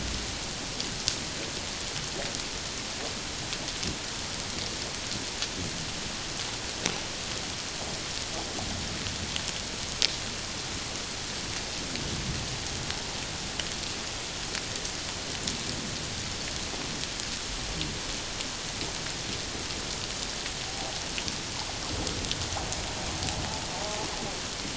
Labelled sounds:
20.7	21.0	humpback whale, 0.78 to 0.94 kHz

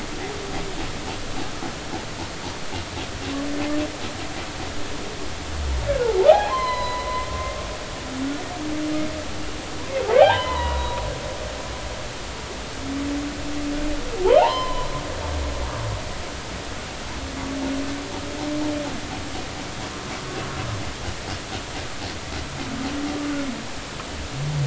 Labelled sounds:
6.3	7.3	humpback whale, 0.80 to 4.2 kHz
10.1	11.0	humpback whale, 0.80 to 4.0 kHz
14.4	14.9	humpback whale, 0.80 to 4.2 kHz

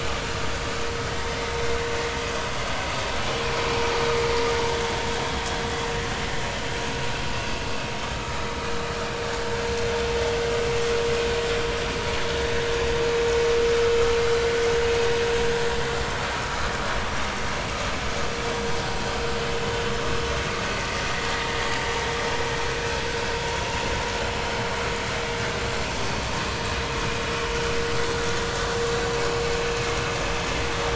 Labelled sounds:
1.1	1.4	vessel noise, 1.8 to 2.1 kHz
7.3	7.7	vessel noise, 2.6 to 2.8 kHz

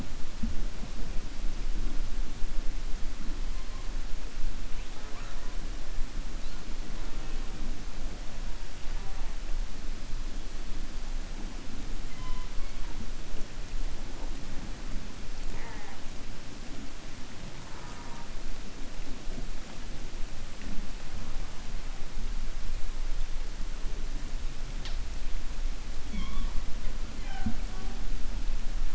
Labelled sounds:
17.6	18.3	killer whale, 0.80 to 2.2 kHz

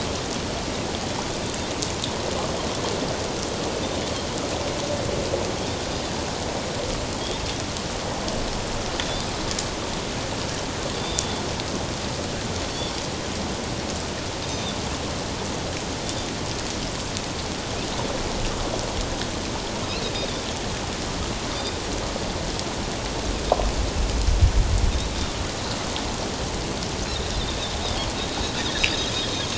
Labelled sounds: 10.9	11.4	Pacific white-sided dolphin, 3.4 to 3.7 kHz
14.5	14.8	Pacific white-sided dolphin, 3.4 to 3.8 kHz
16.0	16.3	Pacific white-sided dolphin, 3.4 to 3.7 kHz

